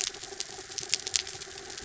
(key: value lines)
label: anthrophony, mechanical
recorder: SoundTrap 300